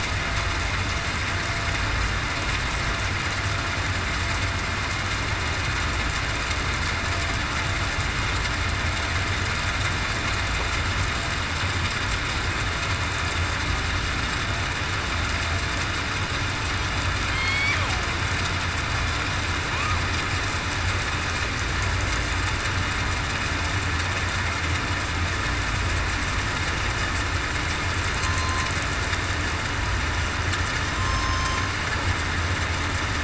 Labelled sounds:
17.3	17.7	killer whale, southern resident, 3.1 to 4.6 kHz
28.2	28.7	killer whale, southern resident, 1.0 to 1.1 kHz
30.9	31.6	killer whale, southern resident, 1.0 to 5.3 kHz

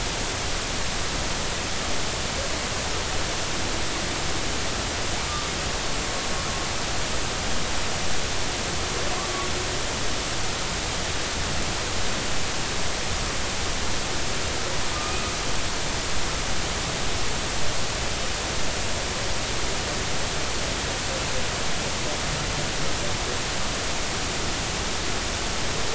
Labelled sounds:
14.9	15.2	humpback whale, 1.2 to 1.3 kHz

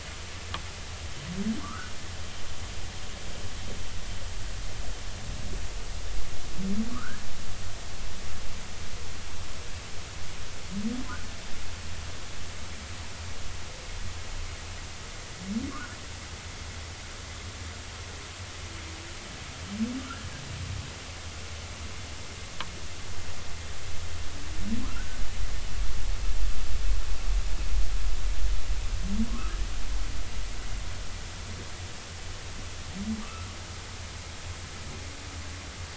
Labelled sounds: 1.6	1.9	humpback whale, 0.96 to 1.6 kHz
6.9	7.2	humpback whale, 1.1 to 1.8 kHz
15.7	16.0	humpback whale, 1.0 to 1.6 kHz
20.0	20.3	humpback whale, 1.2 to 1.7 kHz
24.8	25.2	humpback whale, 1.2 to 1.6 kHz
29.3	29.6	humpback whale, 0.96 to 1.5 kHz
33.2	33.5	humpback whale, 1.1 to 1.4 kHz

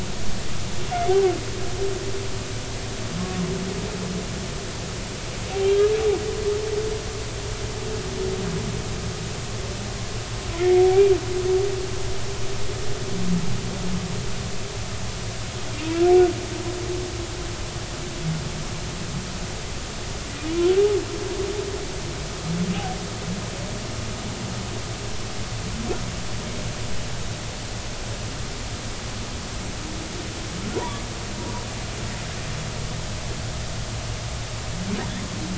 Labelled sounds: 0.0	0.3	humpback whale, 1.1 to 1.2 kHz
5.6	5.9	humpback whale, 3.0 to 3.4 kHz
10.6	10.8	humpback whale, 1.8 to 2.2 kHz
15.7	16.0	humpback whale, 2.3 to 2.8 kHz

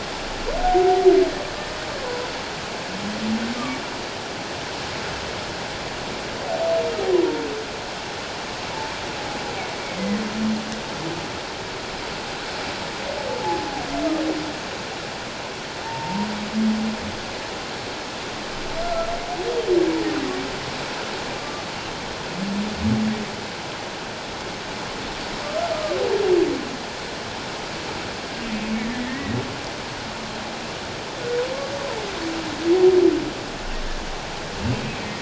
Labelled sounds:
0.6	1.1	humpback whale, 0.78 to 0.81 kHz
9.8	10.2	humpback whale, 1.8 to 2.3 kHz
15.8	16.3	humpback whale, 0.81 to 1.0 kHz
18.8	19.1	humpback whale, 1.3 to 1.4 kHz
21.3	21.6	humpback whale, 1.1 to 1.2 kHz
28.9	29.4	humpback whale, 1.8 to 2.1 kHz

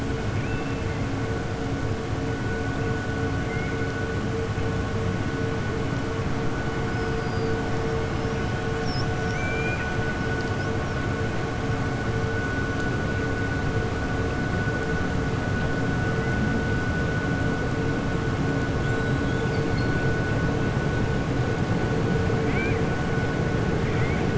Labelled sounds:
0.3	0.9	killer whale, 2.1 to 3.6 kHz
9.2	9.9	killer whale, 1.5 to 4.0 kHz
22.4	22.8	killer whale, 1.5 to 3.2 kHz

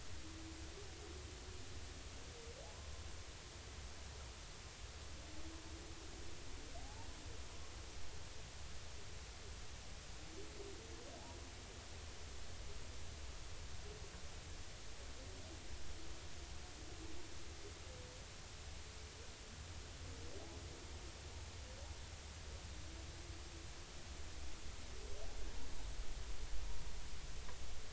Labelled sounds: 6.8	7.1	humpback whale, 0.80 to 0.96 kHz

